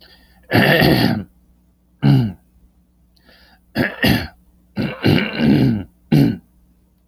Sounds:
Throat clearing